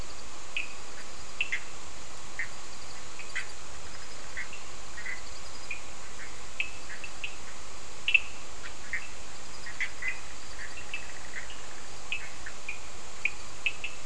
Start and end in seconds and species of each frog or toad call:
0.4	1.7	Cochran's lime tree frog
1.5	5.2	Bischoff's tree frog
6.5	8.3	Cochran's lime tree frog
8.9	11.5	Bischoff's tree frog
12.1	13.9	Cochran's lime tree frog
~4am

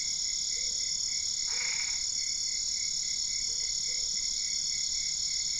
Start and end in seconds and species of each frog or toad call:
1.5	2.0	Boana albopunctata
11pm

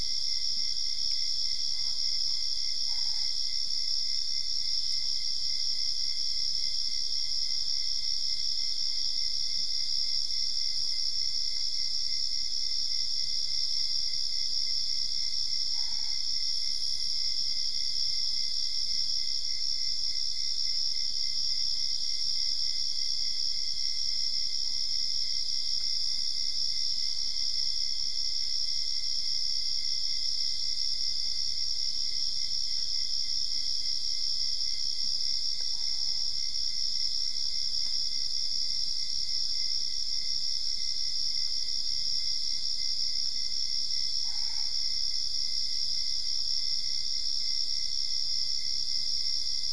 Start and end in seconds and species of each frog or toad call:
2.8	3.5	Boana albopunctata
15.7	16.3	Boana albopunctata
44.2	44.9	Boana albopunctata
~1am

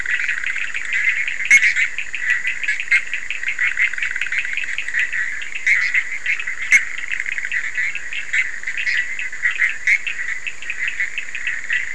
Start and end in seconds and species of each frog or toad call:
0.0	3.1	Bischoff's tree frog
0.0	11.9	Cochran's lime tree frog
5.6	10.2	Bischoff's tree frog
3am

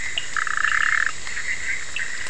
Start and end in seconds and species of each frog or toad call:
0.0	2.2	Bischoff's tree frog
0.0	2.2	Cochran's lime tree frog
0.2	1.2	Scinax perereca
0.2	2.1	two-colored oval frog
~1am

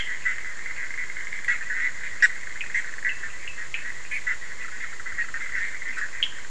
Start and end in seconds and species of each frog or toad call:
0.0	6.5	Bischoff's tree frog
2.6	3.9	Cochran's lime tree frog
6.2	6.3	Cochran's lime tree frog
12:30am

